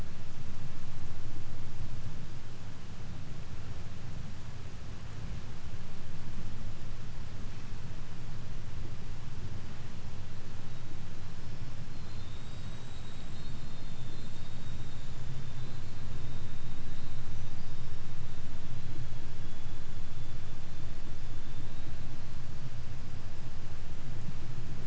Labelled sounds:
11.7	23.8	killer whale, 2.6 to 8.0 kHz

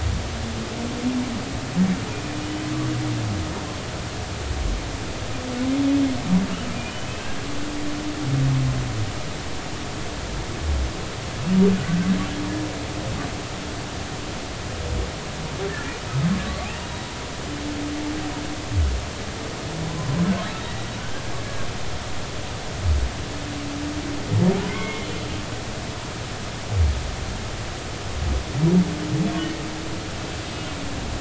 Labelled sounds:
6.7	7.4	humpback whale, 2.2 to 3.1 kHz
16.4	17.1	humpback whale, 1.1 to 3.9 kHz
20.6	21.2	humpback whale, 1.4 to 2.0 kHz
24.7	25.1	humpback whale, 2.0 to 3.4 kHz
29.4	29.6	humpback whale, 1.8 to 1.9 kHz

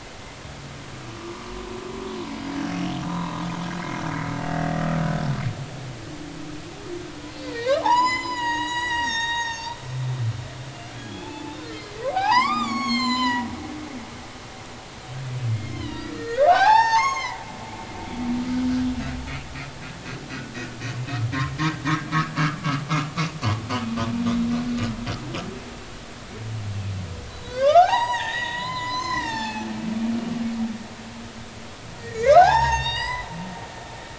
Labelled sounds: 2.2	2.6	humpback whale, 4.9 to 5.0 kHz
3.1	3.4	humpback whale, 0.86 to 4.0 kHz
7.2	9.7	humpback whale, 0.80 to 7.8 kHz
10.9	13.5	humpback whale, 0.80 to 8.0 kHz
15.6	17.4	humpback whale, 0.80 to 7.3 kHz
22.3	22.6	humpback whale, 1.1 to 1.4 kHz
27.3	29.7	humpback whale, 0.80 to 7.9 kHz
32.0	33.3	humpback whale, 0.80 to 6.9 kHz

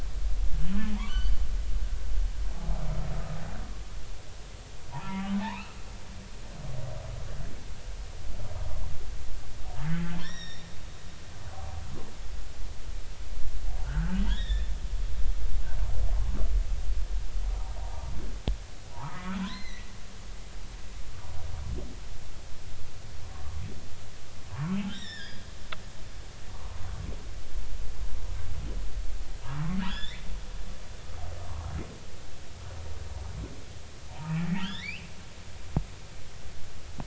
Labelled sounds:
0.9	1.4	humpback whale, 0.83 to 4.7 kHz
3.1	3.4	humpback whale, 1.2 to 1.3 kHz
4.9	5.8	humpback whale, 0.80 to 4.0 kHz
9.9	10.7	humpback whale, 1.6 to 5.8 kHz
13.8	14.7	humpback whale, 1.3 to 3.8 kHz
17.8	18.1	humpback whale, 0.80 to 1.0 kHz
18.9	19.9	humpback whale, 0.80 to 4.2 kHz
23.3	23.6	humpback whale, 0.93 to 1.2 kHz
24.5	25.4	humpback whale, 0.83 to 5.7 kHz
26.5	26.8	humpback whale, 0.90 to 1.2 kHz
29.9	30.3	humpback whale, 1.2 to 7.2 kHz
34.1	35.1	humpback whale, 0.80 to 4.0 kHz

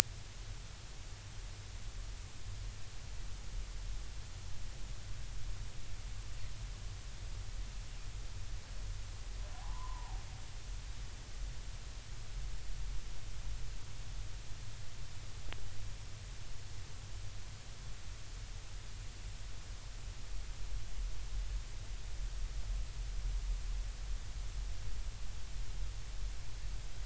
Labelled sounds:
9.5	10.2	humpback whale, 0.80 to 1.2 kHz

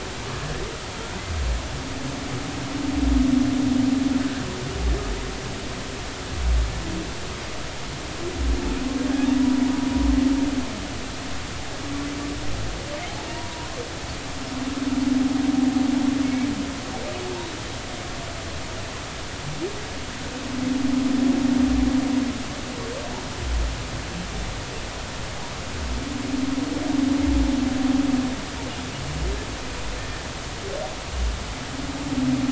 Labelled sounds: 4.2	4.4	humpback whale, 1.5 to 1.8 kHz
9.4	9.7	humpback whale, 0.86 to 1.0 kHz
13.3	13.8	humpback whale, 0.90 to 1.1 kHz
16.2	16.5	humpback whale, 2.1 to 2.3 kHz
30.0	30.3	humpback whale, 1.7 to 1.8 kHz

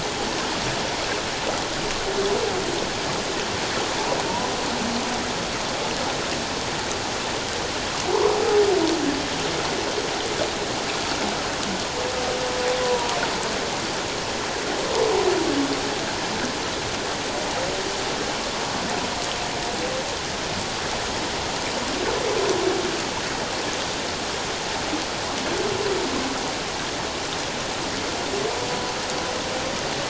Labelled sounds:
12.8	13.2	humpback whale, 0.91 to 1.1 kHz

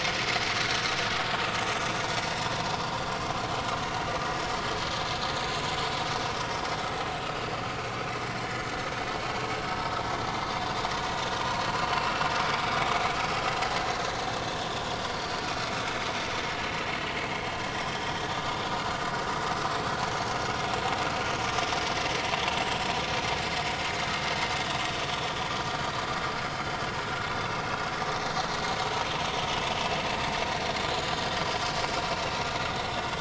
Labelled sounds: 12.5	12.7	vessel noise, 3.6 to 3.8 kHz
15.1	15.4	vessel noise, 4.3 to 4.7 kHz
17.3	17.6	vessel noise, 3.1 to 3.3 kHz

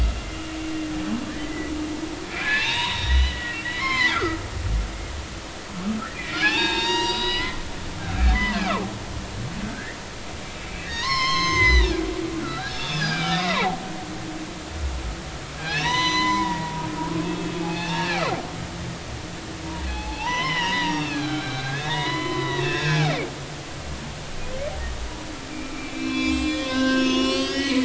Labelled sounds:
1.4	4.4	humpback whale, 0.83 to 4.3 kHz
6.1	8.6	humpback whale, 0.80 to 7.6 kHz
9.6	10.0	humpback whale, 1.5 to 2.1 kHz
10.6	12.1	humpback whale, 0.86 to 6.4 kHz
12.7	13.8	humpback whale, 0.80 to 5.1 kHz
15.6	16.9	humpback whale, 0.90 to 8.0 kHz
17.2	18.2	humpback whale, 0.80 to 3.4 kHz
19.8	23.1	humpback whale, 0.80 to 5.7 kHz
25.5	27.8	humpback whale, 0.99 to 8.0 kHz

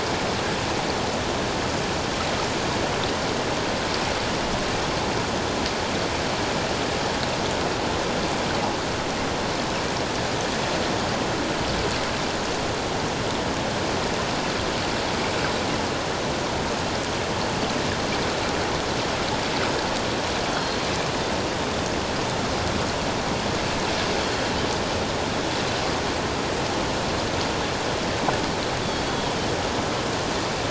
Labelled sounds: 20.5	20.9	Pacific white-sided dolphin, 4.2 to 4.5 kHz
29.1	29.3	Pacific white-sided dolphin, 3.2 to 3.4 kHz

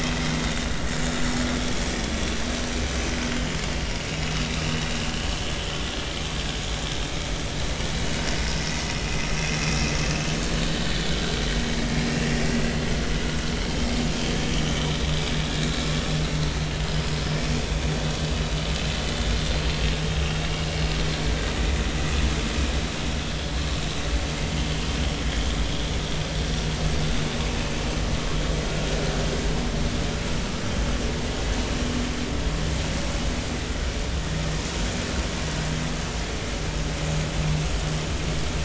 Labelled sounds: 9.7	9.9	vessel noise, 2.4 to 2.7 kHz
11.1	11.3	vessel noise, 1.3 to 1.6 kHz
12.1	12.4	vessel noise, 2.6 to 2.8 kHz
16.8	17.1	vessel noise, 4.9 to 5.2 kHz

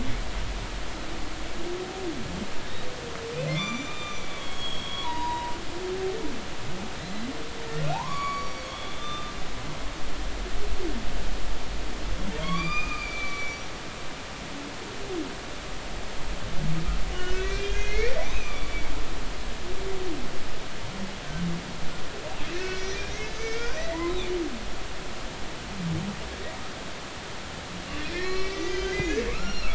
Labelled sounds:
3.5	5.5	humpback whale, 0.90 to 7.2 kHz
7.0	7.3	humpback whale, 3.8 to 4.1 kHz
7.9	9.3	humpback whale, 0.80 to 7.0 kHz
12.4	13.7	humpback whale, 1.0 to 5.9 kHz
17.1	18.9	humpback whale, 1.1 to 6.4 kHz
22.6	24.1	humpback whale, 1.8 to 6.4 kHz
28.1	29.7	humpback whale, 1.1 to 6.4 kHz

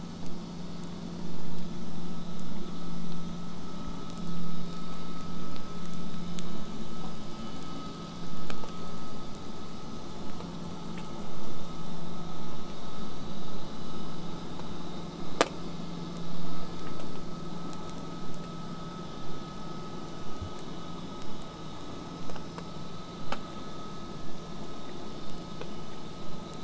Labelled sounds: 4.1	12.1	killer whale, southern resident, J pod, 5.1 to 8.0 kHz

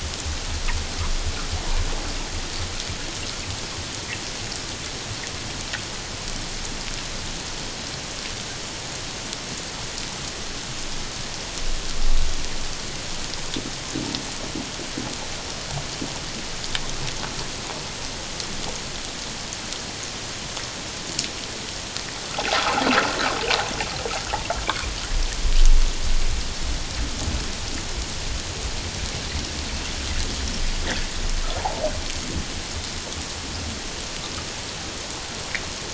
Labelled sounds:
22.5	22.8	water noise, 1.2 to 1.5 kHz

